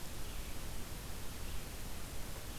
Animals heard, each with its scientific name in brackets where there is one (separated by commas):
Red-eyed Vireo (Vireo olivaceus)